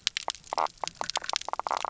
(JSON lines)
{"label": "biophony, knock croak", "recorder": "SoundTrap 300"}